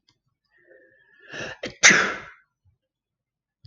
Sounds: Sneeze